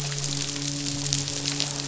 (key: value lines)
label: biophony, midshipman
recorder: SoundTrap 500